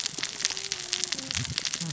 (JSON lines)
{"label": "biophony, cascading saw", "recorder": "SoundTrap 600 or HydroMoth"}